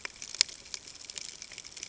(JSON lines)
{"label": "ambient", "recorder": "HydroMoth"}